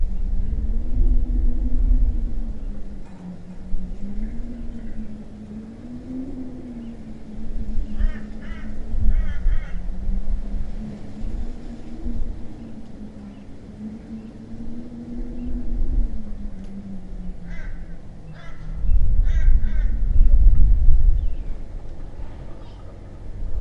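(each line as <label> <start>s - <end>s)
The wind is blowing. 0.0s - 23.5s
A bird cries repeatedly and briefly. 7.9s - 9.9s
A bird cries repeatedly and briefly. 17.3s - 20.4s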